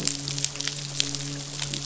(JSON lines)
{"label": "biophony, midshipman", "recorder": "SoundTrap 500"}